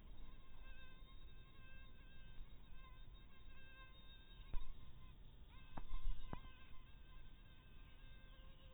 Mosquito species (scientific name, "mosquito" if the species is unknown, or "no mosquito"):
mosquito